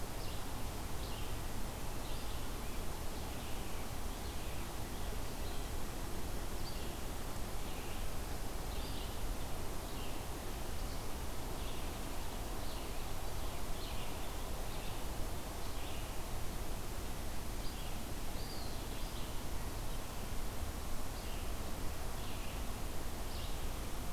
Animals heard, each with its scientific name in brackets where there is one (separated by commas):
Eastern Wood-Pewee (Contopus virens), Red-eyed Vireo (Vireo olivaceus)